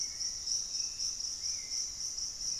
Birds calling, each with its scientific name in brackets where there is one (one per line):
Hauxwell's Thrush (Turdus hauxwelli)
Piratic Flycatcher (Legatus leucophaius)
unidentified bird